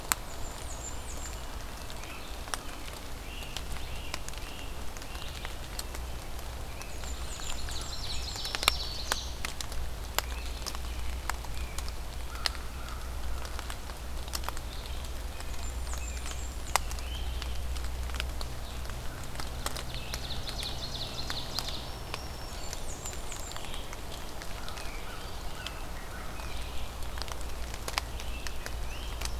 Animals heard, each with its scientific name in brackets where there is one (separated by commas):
Black-throated Green Warbler (Setophaga virens), Great Crested Flycatcher (Myiarchus crinitus), American Robin (Turdus migratorius), American Crow (Corvus brachyrhynchos), Blackburnian Warbler (Setophaga fusca), Ovenbird (Seiurus aurocapilla), Red-eyed Vireo (Vireo olivaceus)